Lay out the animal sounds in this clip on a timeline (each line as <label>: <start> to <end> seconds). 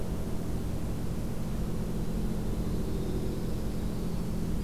Winter Wren (Troglodytes hiemalis): 1.9 to 4.6 seconds
Dark-eyed Junco (Junco hyemalis): 2.3 to 3.7 seconds